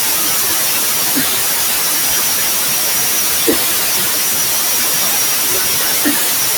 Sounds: Sigh